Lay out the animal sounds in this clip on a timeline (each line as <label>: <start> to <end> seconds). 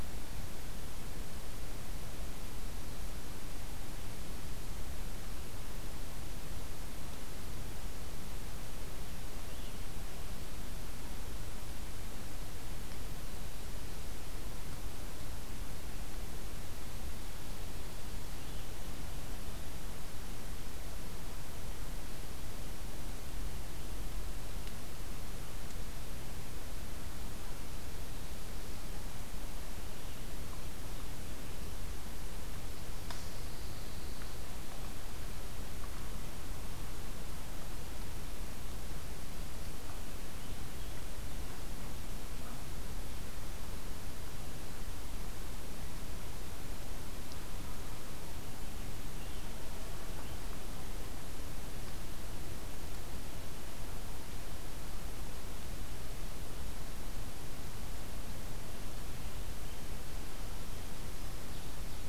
Pine Warbler (Setophaga pinus): 32.8 to 34.5 seconds